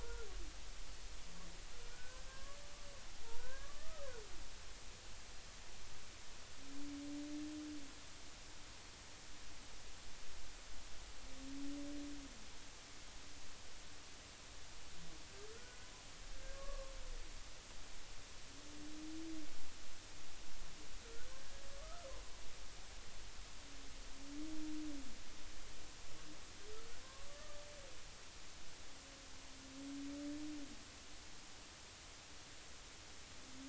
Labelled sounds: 0.0	0.3	humpback whale, 1.3 to 1.5 kHz
1.9	2.6	humpback whale, 1.0 to 1.8 kHz
3.2	4.1	humpback whale, 0.86 to 1.7 kHz
15.5	16.9	humpback whale, 1.0 to 1.7 kHz
21.0	22.1	humpback whale, 1.1 to 1.7 kHz
27.3	27.6	humpback whale, 1.1 to 1.2 kHz

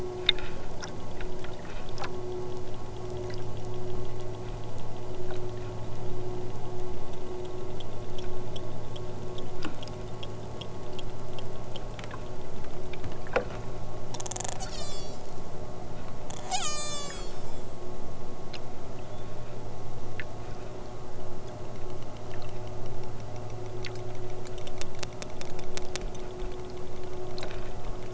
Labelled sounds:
14.5	15.3	killer whale, southern Alaska resident, 0.87 to 8.0 kHz
16.4	17.4	killer whale, southern Alaska resident, 0.55 to 8.0 kHz
18.9	19.5	killer whale, southern Alaska resident, 1.2 to 3.9 kHz

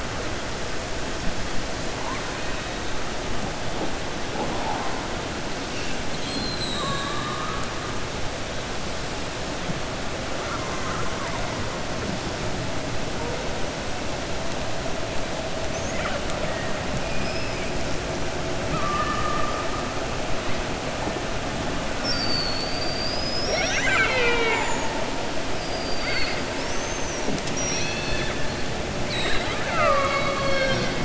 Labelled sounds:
6.5	7.1	killer whale, 7.3 to 8.0 kHz
10.4	11.5	killer whale, 0.69 to 2.1 kHz
17.1	17.7	killer whale, 2.2 to 2.9 kHz

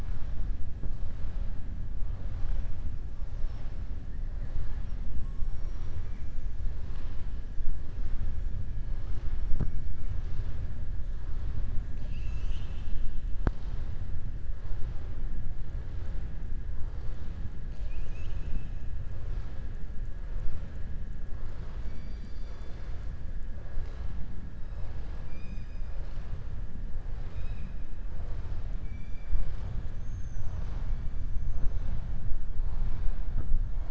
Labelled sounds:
27.1	27.7	killer whale, southern resident, 1.8 to 5.4 kHz

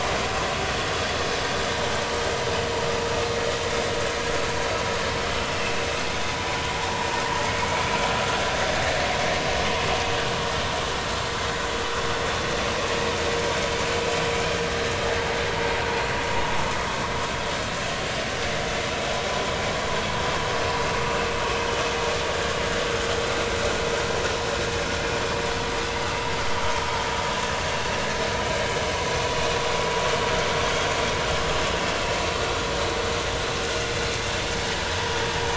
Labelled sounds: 6.7	7.1	vessel noise, 0.80 to 1.0 kHz

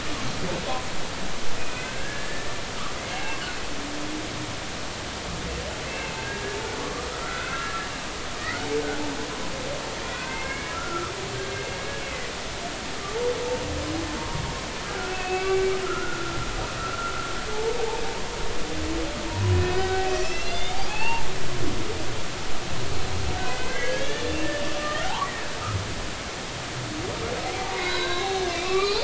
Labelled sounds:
1.6	2.5	humpback whale, 1.5 to 2.6 kHz
3.0	3.4	humpback whale, 2.1 to 2.8 kHz
5.9	6.4	humpback whale, 1.5 to 2.8 kHz
6.8	7.8	humpback whale, 1.1 to 2.8 kHz
8.4	8.7	humpback whale, 1.8 to 2.2 kHz
10.0	11.1	humpback whale, 1.1 to 2.6 kHz
12.0	12.3	humpback whale, 1.9 to 2.3 kHz
14.2	16.6	humpback whale, 1.0 to 2.8 kHz
17.5	17.9	humpback whale, 0.80 to 0.96 kHz
19.3	21.6	humpback whale, 0.80 to 6.2 kHz
23.4	25.3	humpback whale, 0.80 to 2.8 kHz
27.8	29.0	humpback whale, 0.93 to 4.8 kHz

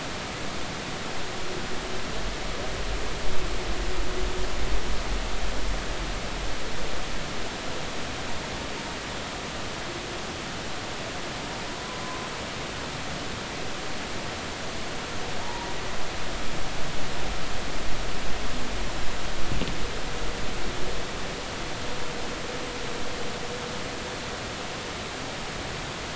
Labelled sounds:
15.4	15.7	humpback whale, 0.83 to 0.99 kHz

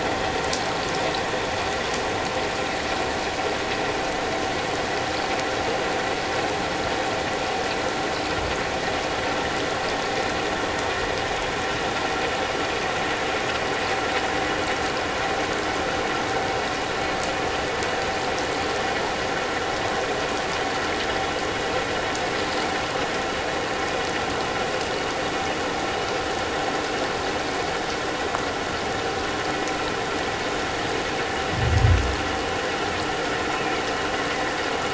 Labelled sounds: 33.6	33.8	killer whale, offshore, 2.1 to 2.8 kHz

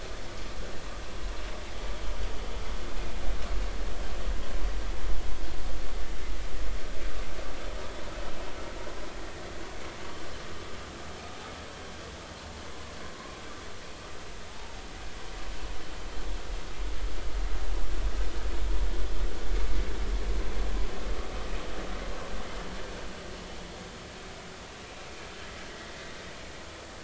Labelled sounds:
14.5	14.8	humpback whale, 0.80 to 0.99 kHz

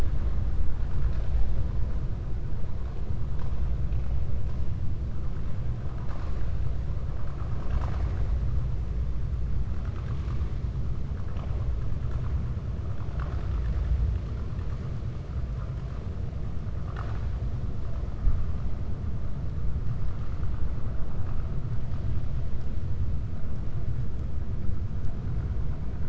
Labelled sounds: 13.0	13.9	vessel noise, 0.60 to 5.0 kHz
16.8	17.3	vessel noise, 0.70 to 7.7 kHz

